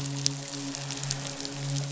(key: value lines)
label: biophony, midshipman
recorder: SoundTrap 500